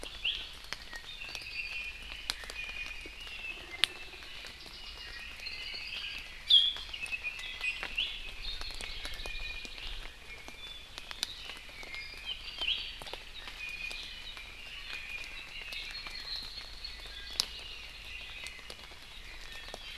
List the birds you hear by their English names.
Iiwi, Apapane, Red-billed Leiothrix, Hawaii Creeper